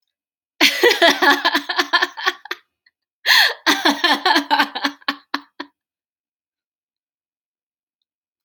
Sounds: Laughter